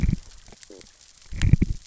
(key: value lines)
label: biophony, stridulation
recorder: SoundTrap 600 or HydroMoth